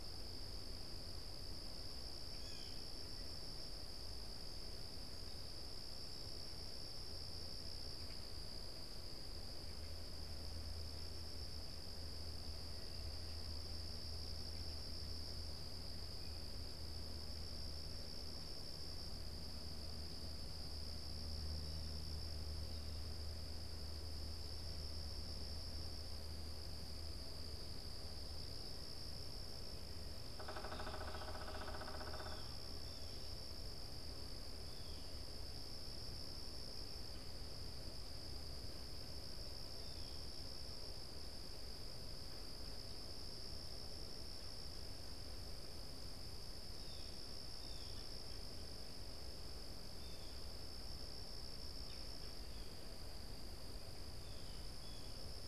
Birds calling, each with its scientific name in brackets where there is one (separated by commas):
Pileated Woodpecker (Dryocopus pileatus), Blue Jay (Cyanocitta cristata)